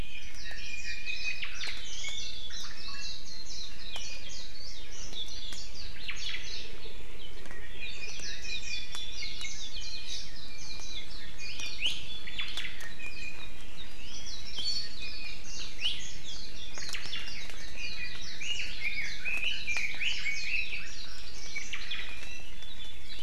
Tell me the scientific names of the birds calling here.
Zosterops japonicus, Drepanis coccinea, Myadestes obscurus, Leiothrix lutea